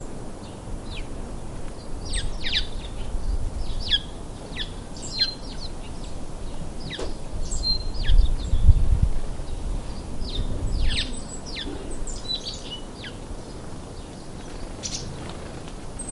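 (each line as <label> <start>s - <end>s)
Birds chirping quietly in the background. 0.0s - 16.1s
Outdoor static noise. 0.0s - 16.1s
A bird is calling nearby. 2.1s - 2.7s
A bird chirps nearby. 3.9s - 5.3s
A bird chirps sharply nearby. 7.5s - 7.9s
Wind blowing quietly. 7.9s - 9.4s
Wind blowing quietly. 10.1s - 11.2s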